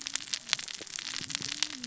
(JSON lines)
{"label": "biophony, cascading saw", "recorder": "SoundTrap 600 or HydroMoth"}